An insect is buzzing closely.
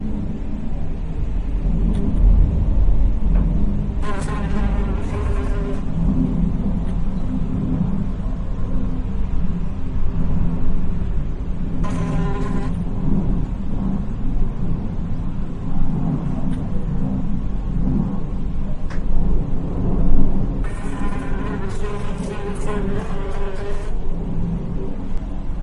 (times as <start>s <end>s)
4.1s 6.4s, 12.3s 12.9s, 20.9s 24.4s